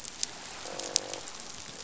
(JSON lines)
{"label": "biophony, croak", "recorder": "SoundTrap 500"}